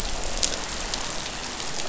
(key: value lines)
label: biophony, croak
recorder: SoundTrap 500